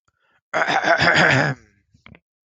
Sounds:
Throat clearing